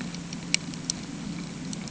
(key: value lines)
label: anthrophony, boat engine
recorder: HydroMoth